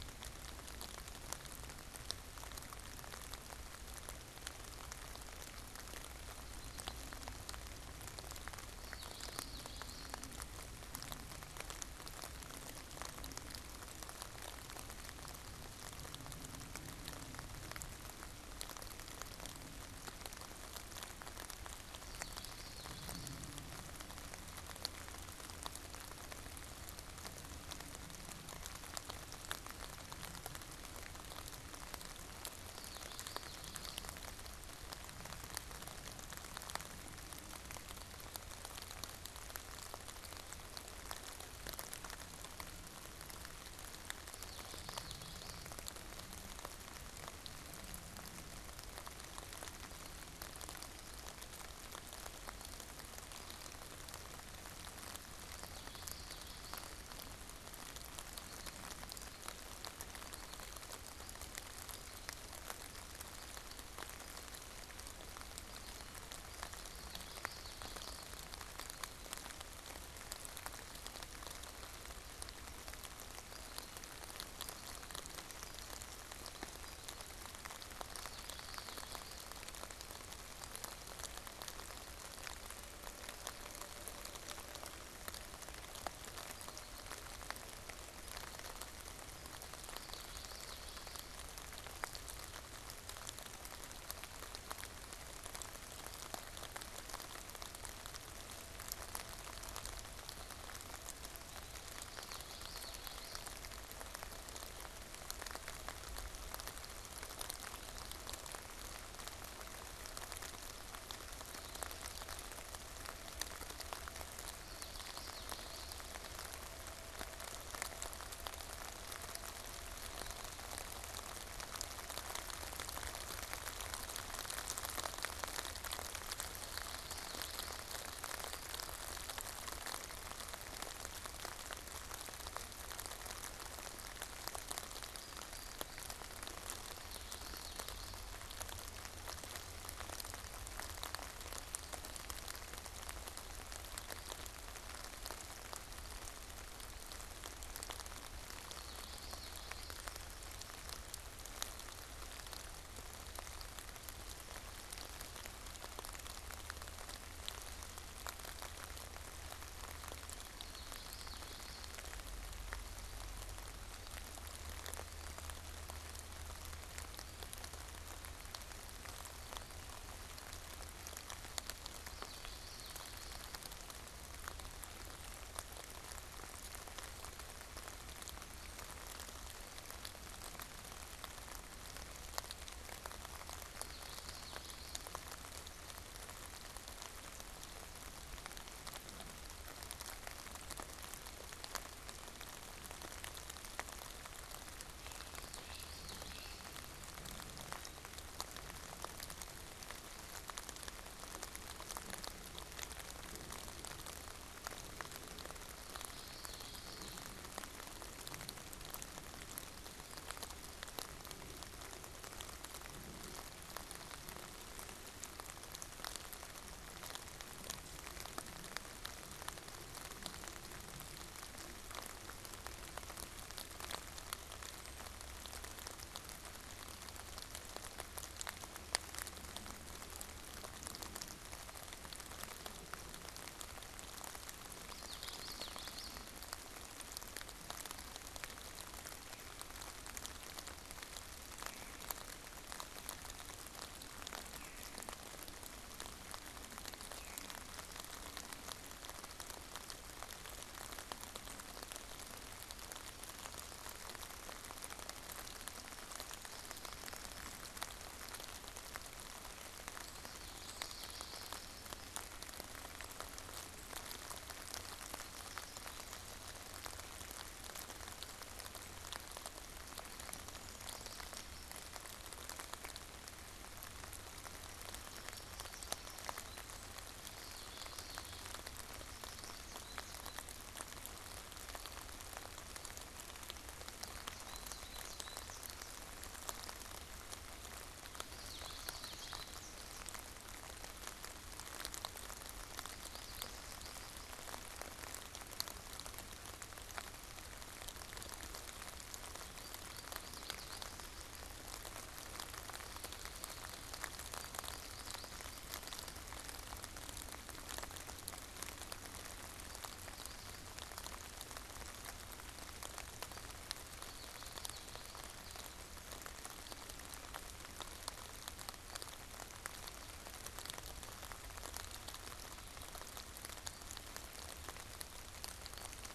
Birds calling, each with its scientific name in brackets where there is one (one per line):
Common Yellowthroat (Geothlypis trichas)
Veery (Catharus fuscescens)
American Goldfinch (Spinus tristis)